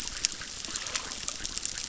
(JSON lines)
{"label": "biophony, chorus", "recorder": "SoundTrap 600"}